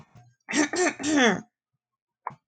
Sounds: Throat clearing